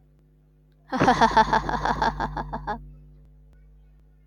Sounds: Laughter